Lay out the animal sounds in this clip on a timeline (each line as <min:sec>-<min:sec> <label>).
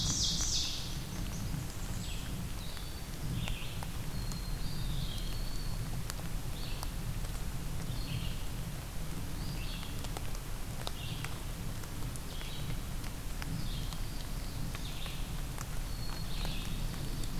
0:00.0-0:01.0 Ovenbird (Seiurus aurocapilla)
0:00.0-0:03.8 Red-eyed Vireo (Vireo olivaceus)
0:00.7-0:02.3 Blackburnian Warbler (Setophaga fusca)
0:04.0-0:05.2 Black-capped Chickadee (Poecile atricapillus)
0:04.4-0:05.9 Eastern Wood-Pewee (Contopus virens)
0:04.9-0:17.4 Red-eyed Vireo (Vireo olivaceus)
0:13.5-0:15.1 Ovenbird (Seiurus aurocapilla)
0:15.7-0:16.9 Black-capped Chickadee (Poecile atricapillus)
0:16.5-0:17.4 Ovenbird (Seiurus aurocapilla)